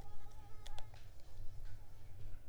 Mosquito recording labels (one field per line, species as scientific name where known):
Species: Mansonia africanus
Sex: female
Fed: unfed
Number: one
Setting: cup